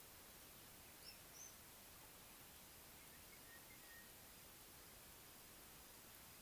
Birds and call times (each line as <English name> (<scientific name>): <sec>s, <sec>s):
Sulphur-breasted Bushshrike (Telophorus sulfureopectus): 3.6s